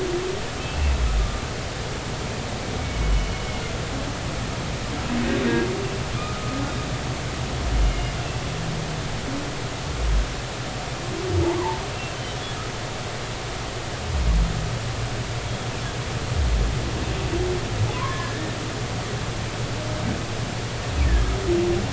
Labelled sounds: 0.6	0.9	humpback whale, 2.5 to 2.7 kHz
2.8	3.4	humpback whale, 2.2 to 3.0 kHz
6.2	6.6	humpback whale, 1.2 to 1.3 kHz
11.6	11.8	humpback whale, 0.83 to 1.2 kHz
17.9	18.5	humpback whale, 0.96 to 1.9 kHz

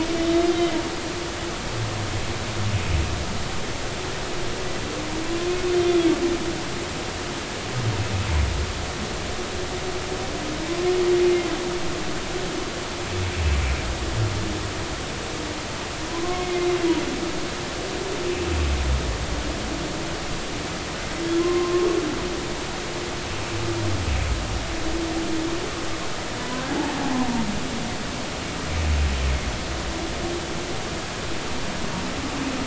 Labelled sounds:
0.1	0.5	humpback whale, 3.0 to 3.9 kHz
16.1	16.7	humpback whale, 0.96 to 2.2 kHz
21.4	21.9	humpback whale, 0.96 to 1.1 kHz
26.4	26.6	humpback whale, 0.96 to 1.1 kHz

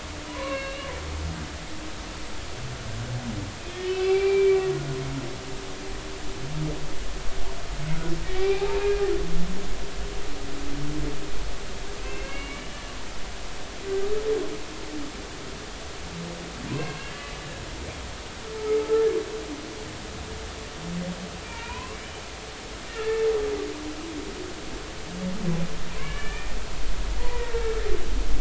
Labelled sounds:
0.3	0.9	humpback whale, 0.93 to 4.0 kHz
3.6	4.7	humpback whale, 0.80 to 3.3 kHz
8.3	8.8	humpback whale, 0.80 to 2.6 kHz
12.0	12.8	humpback whale, 2.1 to 3.0 kHz
16.7	17.4	humpback whale, 0.93 to 2.8 kHz
18.8	19.1	humpback whale, 1.2 to 1.4 kHz
21.4	22.0	humpback whale, 0.86 to 2.6 kHz
22.9	23.3	humpback whale, 1.7 to 1.9 kHz
25.9	26.6	humpback whale, 0.96 to 3.0 kHz
27.3	27.6	humpback whale, 1.8 to 2.0 kHz

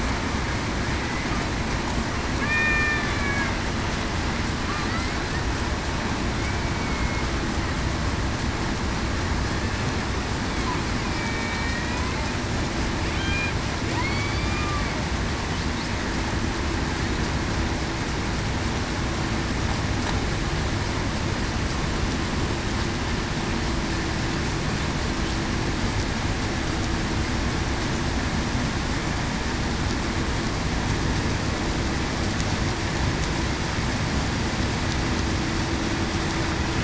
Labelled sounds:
2.4	3.5	killer whale, Bigg's (transient), 1.6 to 2.5 kHz
6.6	7.2	killer whale, Bigg's (transient), 2.1 to 2.3 kHz
11.0	11.8	killer whale, Bigg's (transient), 2.2 to 2.5 kHz
14.0	14.7	killer whale, Bigg's (transient), 2.0 to 4.9 kHz

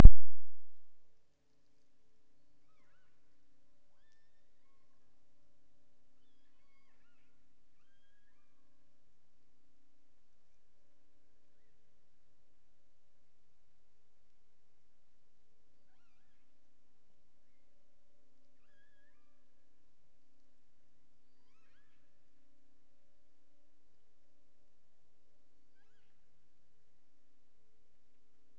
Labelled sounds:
2.3	3.3	killer whale, offshore, 0.70 to 6.4 kHz
3.8	5.2	killer whale, offshore, 0.64 to 5.6 kHz
6.1	7.5	killer whale, offshore, 0.64 to 5.2 kHz
7.8	9.0	killer whale, offshore, 0.75 to 6.8 kHz
11.4	11.9	killer whale, offshore, 1.3 to 3.3 kHz
15.7	16.6	killer whale, offshore, 0.80 to 6.3 kHz
17.4	17.9	killer whale, offshore, 1.4 to 2.4 kHz
18.4	19.5	killer whale, offshore, 0.84 to 7.2 kHz
21.2	22.1	killer whale, offshore, 0.75 to 8.0 kHz
25.6	26.3	killer whale, offshore, 0.64 to 7.1 kHz

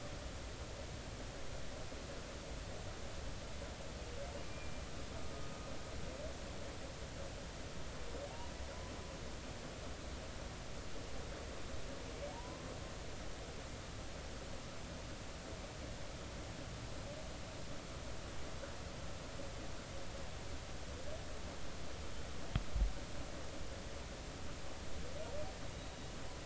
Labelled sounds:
12.3	12.7	humpback whale, 0.80 to 1.1 kHz
25.7	26.0	humpback whale, 3.8 to 3.9 kHz

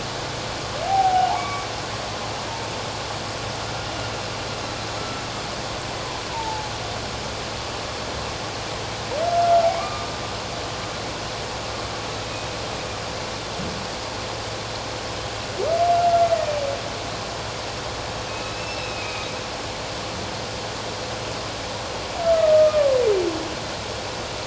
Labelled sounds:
0.8	1.7	humpback whale, 0.78 to 2.3 kHz
5.0	5.2	humpback whale, 1.3 to 1.4 kHz
6.3	6.7	humpback whale, 0.78 to 1.0 kHz
9.3	10.1	humpback whale, 1.0 to 2.4 kHz
18.3	19.3	humpback whale, 2.3 to 2.8 kHz
22.2	23.0	humpback whale, 1.0 to 1.4 kHz

